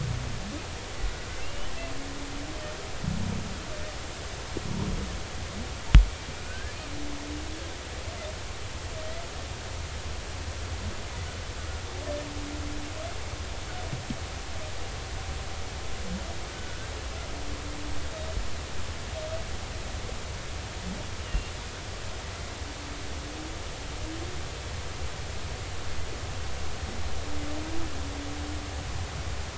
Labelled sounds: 1.4	1.7	humpback whale, 2.6 to 3.1 kHz
6.4	6.8	humpback whale, 1.4 to 1.8 kHz
16.6	16.8	humpback whale, 1.4 to 1.5 kHz
21.2	21.5	humpback whale, 2.7 to 3.0 kHz

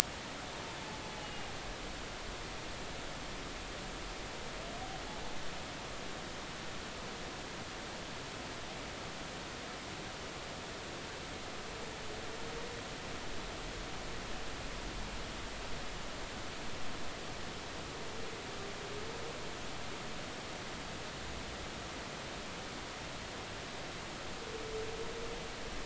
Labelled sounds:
1.2	1.5	humpback whale, 2.8 to 2.9 kHz

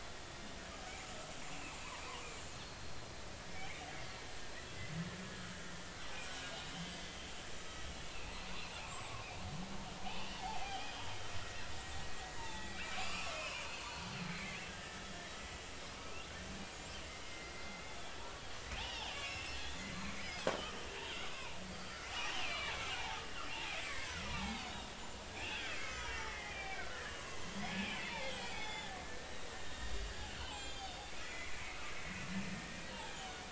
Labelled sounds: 2.6	3.0	killer whale, Bigg's (transient), 4.2 to 4.4 kHz
3.5	3.8	killer whale, Bigg's (transient), 2.0 to 2.5 kHz
6.7	7.2	killer whale, Bigg's (transient), 2.0 to 3.2 kHz
10.0	10.9	killer whale, Bigg's (transient), 0.80 to 3.4 kHz
12.4	15.2	killer whale, Bigg's (transient), 0.83 to 4.5 kHz
17.2	18.1	killer whale, Bigg's (transient), 2.0 to 3.6 kHz
19.1	20.4	killer whale, Bigg's (transient), 1.8 to 7.0 kHz
21.3	23.2	killer whale, Bigg's (transient), 0.80 to 4.8 kHz
23.8	30.0	killer whale, Bigg's (transient), 0.80 to 8.0 kHz
30.5	31.9	killer whale, Bigg's (transient), 1.9 to 7.7 kHz
33.0	33.4	killer whale, Bigg's (transient), 1.8 to 3.5 kHz

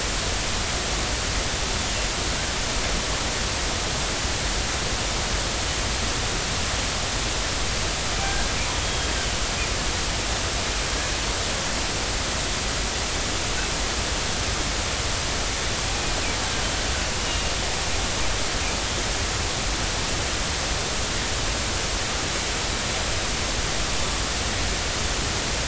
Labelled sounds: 8.2	9.1	killer whale, northern resident, 1.5 to 3.3 kHz
17.3	17.5	killer whale, northern resident, 2.8 to 2.9 kHz

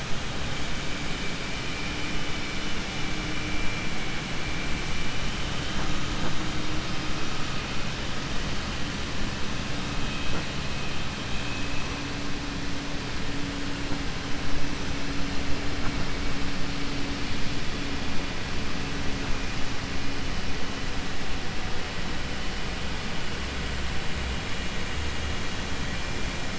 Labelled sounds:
1.4	2.1	vessel noise, 2.1 to 3.9 kHz

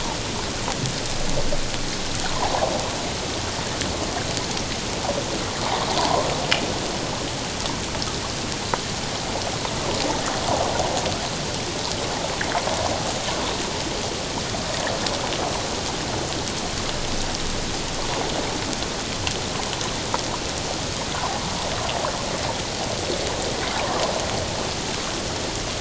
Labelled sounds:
6.0	6.3	water noise, 0.81 to 1.1 kHz
21.1	21.4	water noise, 0.78 to 1.2 kHz

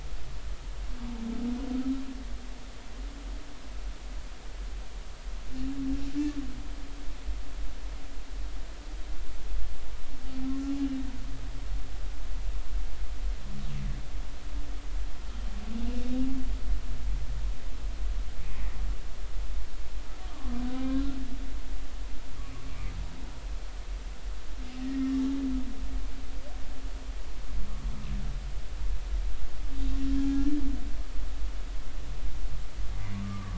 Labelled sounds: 20.7	21.0	humpback whale, 0.99 to 1.1 kHz
21.7	22.0	humpback whale, 1.4 to 1.7 kHz
24.8	25.2	humpback whale, 1.8 to 2.0 kHz
30.3	30.6	humpback whale, 1.6 to 1.8 kHz
33.2	33.5	humpback whale, 1.1 to 1.2 kHz

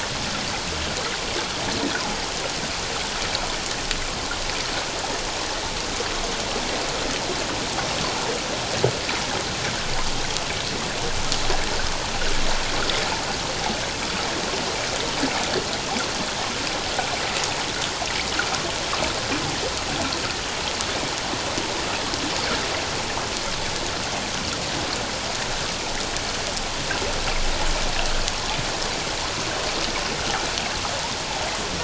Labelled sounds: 30.2	30.4	water noise, 1.2 to 1.6 kHz

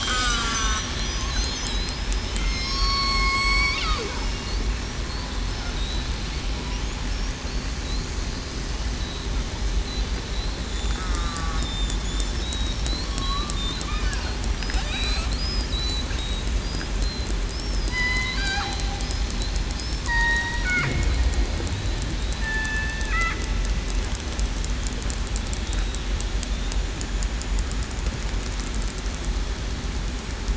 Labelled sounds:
0.0	0.8	killer whale, southern resident, 1.1 to 5.1 kHz
1.3	2.1	killer whale, southern resident, 5.0 to 5.4 kHz
2.4	3.8	killer whale, southern resident, 0.96 to 8.0 kHz
10.9	11.6	killer whale, southern resident, 1.1 to 1.3 kHz
12.4	12.7	killer whale, southern resident, 3.7 to 3.9 kHz
14.8	15.2	killer whale, southern resident, 3.6 to 4.2 kHz
15.7	16.0	killer whale, southern resident, 3.8 to 4.1 kHz
17.6	18.2	killer whale, southern resident, 4.8 to 5.5 kHz
18.4	18.8	killer whale, southern resident, 0.75 to 0.87 kHz
20.1	20.6	killer whale, southern resident, 0.89 to 3.8 kHz
22.4	23.1	killer whale, southern resident, 1.7 to 2.7 kHz
25.7	26.0	killer whale, southern resident, 3.7 to 3.8 kHz

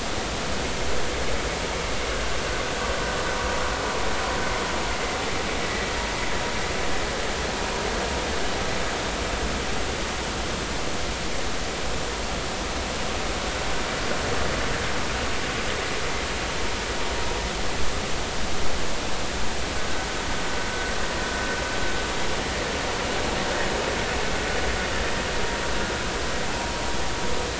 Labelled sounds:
5.6	5.9	vessel noise, 1.9 to 2.0 kHz

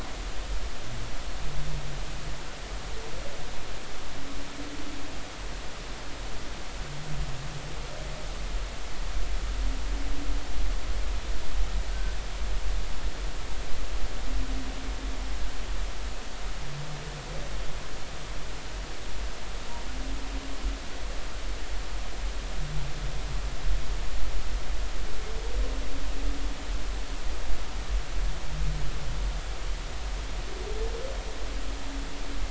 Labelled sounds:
11.9	12.2	humpback whale, 1.5 to 1.6 kHz

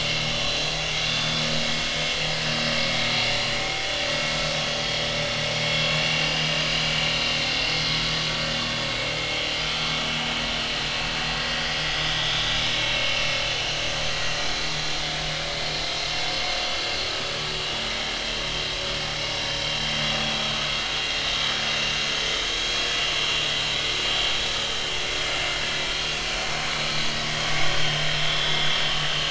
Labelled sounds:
0.0	0.7	vessel noise, 2.6 to 4.1 kHz
1.1	1.4	vessel noise, 3.3 to 3.6 kHz
6.0	6.6	vessel noise, 2.7 to 5.0 kHz
7.6	8.0	vessel noise, 3.3 to 4.6 kHz
9.6	9.9	vessel noise, 1.3 to 1.4 kHz
12.5	13.2	vessel noise, 2.6 to 3.9 kHz
26.4	26.6	vessel noise, 4.2 to 4.3 kHz
27.7	29.2	vessel noise, 2.9 to 3.6 kHz

